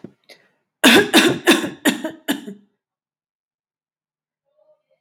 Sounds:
Cough